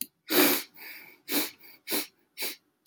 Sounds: Sniff